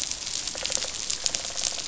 {"label": "biophony, rattle response", "recorder": "SoundTrap 500"}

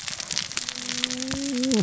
{"label": "biophony, cascading saw", "recorder": "SoundTrap 600 or HydroMoth"}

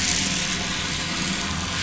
{"label": "anthrophony, boat engine", "recorder": "SoundTrap 500"}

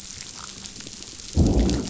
{"label": "biophony, growl", "recorder": "SoundTrap 500"}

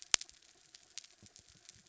{"label": "anthrophony, mechanical", "recorder": "SoundTrap 300"}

